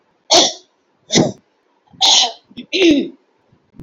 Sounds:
Throat clearing